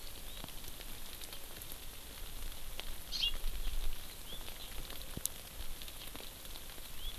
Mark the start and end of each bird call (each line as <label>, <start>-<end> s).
Hawaii Amakihi (Chlorodrepanis virens), 0.0-0.4 s
Hawaii Amakihi (Chlorodrepanis virens), 3.1-3.4 s
House Finch (Haemorhous mexicanus), 4.1-4.4 s
House Finch (Haemorhous mexicanus), 6.8-7.1 s